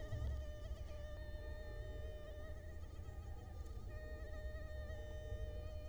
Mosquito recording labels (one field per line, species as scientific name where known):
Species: Culex quinquefasciatus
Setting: cup